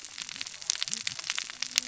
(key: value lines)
label: biophony, cascading saw
recorder: SoundTrap 600 or HydroMoth